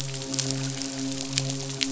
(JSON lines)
{"label": "biophony, midshipman", "recorder": "SoundTrap 500"}